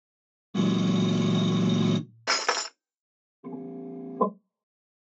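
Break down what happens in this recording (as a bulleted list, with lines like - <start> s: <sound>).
- 0.5 s: a lawn mower can be heard
- 2.3 s: glass shatters
- 4.2 s: someone says "follow"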